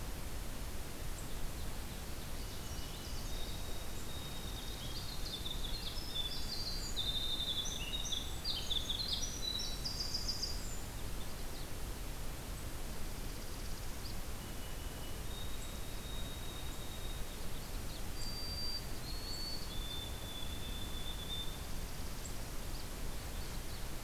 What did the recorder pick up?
Ovenbird, White-throated Sparrow, Northern Parula, Winter Wren, Magnolia Warbler